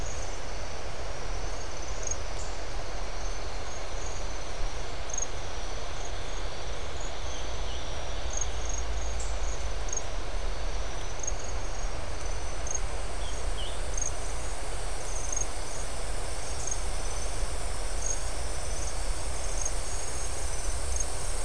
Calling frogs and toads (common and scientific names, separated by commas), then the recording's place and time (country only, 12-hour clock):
none
Brazil, 6:30pm